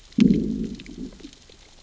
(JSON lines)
{"label": "biophony, growl", "recorder": "SoundTrap 600 or HydroMoth"}